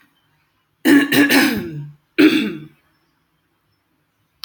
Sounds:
Throat clearing